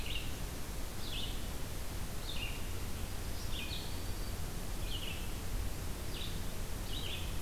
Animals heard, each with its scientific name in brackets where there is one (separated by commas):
Red-eyed Vireo (Vireo olivaceus), Black-throated Green Warbler (Setophaga virens)